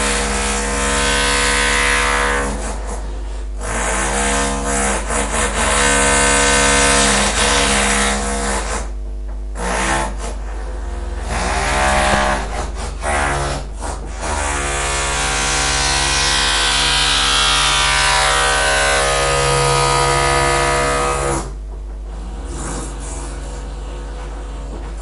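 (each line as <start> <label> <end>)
0.0 The irregular, repeated sound of a hammer drill. 25.0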